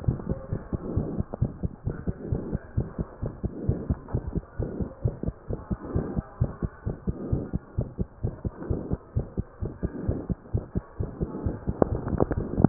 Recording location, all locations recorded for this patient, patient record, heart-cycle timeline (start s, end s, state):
aortic valve (AV)
aortic valve (AV)+pulmonary valve (PV)+tricuspid valve (TV)+mitral valve (MV)
#Age: Child
#Sex: Female
#Height: 125.0 cm
#Weight: 31.9 kg
#Pregnancy status: False
#Murmur: Present
#Murmur locations: aortic valve (AV)+mitral valve (MV)+pulmonary valve (PV)+tricuspid valve (TV)
#Most audible location: pulmonary valve (PV)
#Systolic murmur timing: Mid-systolic
#Systolic murmur shape: Diamond
#Systolic murmur grading: II/VI
#Systolic murmur pitch: Medium
#Systolic murmur quality: Harsh
#Diastolic murmur timing: nan
#Diastolic murmur shape: nan
#Diastolic murmur grading: nan
#Diastolic murmur pitch: nan
#Diastolic murmur quality: nan
#Outcome: Abnormal
#Campaign: 2015 screening campaign
0.00	0.49	unannotated
0.49	0.58	S1
0.58	0.72	systole
0.72	0.80	S2
0.80	0.94	diastole
0.94	1.08	S1
1.08	1.18	systole
1.18	1.26	S2
1.26	1.40	diastole
1.40	1.54	S1
1.54	1.62	systole
1.62	1.72	S2
1.72	1.86	diastole
1.86	1.96	S1
1.96	2.08	systole
2.08	2.16	S2
2.16	2.30	diastole
2.30	2.42	S1
2.42	2.51	systole
2.51	2.59	S2
2.59	2.78	diastole
2.78	2.86	S1
2.86	2.97	systole
2.97	3.06	S2
3.06	3.22	diastole
3.22	3.32	S1
3.32	3.42	systole
3.42	3.52	S2
3.52	3.66	diastole
3.66	3.80	S1
3.80	3.90	systole
3.90	3.98	S2
3.98	4.14	diastole
4.14	4.24	S1
4.24	4.35	systole
4.35	4.42	S2
4.42	4.60	diastole
4.60	4.70	S1
4.70	4.80	systole
4.80	4.88	S2
4.88	5.04	diastole
5.04	5.16	S1
5.16	5.26	systole
5.26	5.34	S2
5.34	5.50	diastole
5.50	5.60	S1
5.60	5.70	systole
5.70	5.78	S2
5.78	5.94	diastole
5.94	6.06	S1
6.06	6.16	systole
6.16	6.26	S2
6.26	6.40	diastole
6.40	6.52	S1
6.52	6.62	systole
6.62	6.70	S2
6.70	6.86	diastole
6.86	6.96	S1
6.96	7.07	systole
7.07	7.13	S2
7.13	7.31	diastole
7.31	7.39	S1
7.39	7.54	systole
7.54	7.59	S2
7.59	7.78	diastole
7.78	7.88	S1
7.88	8.00	systole
8.00	8.06	S2
8.06	8.24	diastole
8.24	8.34	S1
8.34	8.44	systole
8.44	8.52	S2
8.52	8.70	diastole
8.70	8.80	S1
8.80	8.91	systole
8.91	8.98	S2
8.98	9.15	diastole
9.15	9.26	S1
9.26	9.36	systole
9.36	9.45	S2
9.45	9.61	diastole
9.61	9.70	S1
9.70	9.81	systole
9.81	9.88	S2
9.88	10.08	diastole
10.08	10.16	S1
10.16	10.28	systole
10.28	10.36	S2
10.36	10.54	diastole
10.54	10.64	S1
10.64	10.74	systole
10.74	10.82	S2
10.82	10.99	diastole
10.99	11.10	S1
11.10	11.20	systole
11.20	11.30	S2
11.30	11.44	diastole
11.44	11.56	S1
11.56	11.67	systole
11.67	11.76	S2
11.76	11.90	diastole
11.90	12.69	unannotated